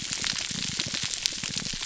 {"label": "biophony, pulse", "recorder": "SoundTrap 300"}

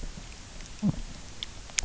{"label": "biophony", "recorder": "SoundTrap 300"}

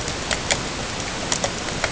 {"label": "ambient", "recorder": "HydroMoth"}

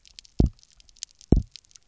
{"label": "biophony, double pulse", "recorder": "SoundTrap 300"}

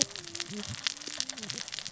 {"label": "biophony, cascading saw", "recorder": "SoundTrap 600 or HydroMoth"}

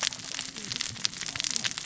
{"label": "biophony, cascading saw", "recorder": "SoundTrap 600 or HydroMoth"}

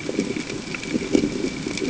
{"label": "ambient", "recorder": "HydroMoth"}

